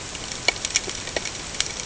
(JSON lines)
{"label": "ambient", "recorder": "HydroMoth"}